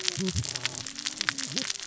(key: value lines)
label: biophony, cascading saw
recorder: SoundTrap 600 or HydroMoth